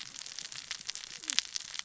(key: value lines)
label: biophony, cascading saw
recorder: SoundTrap 600 or HydroMoth